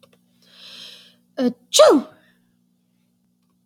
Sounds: Sneeze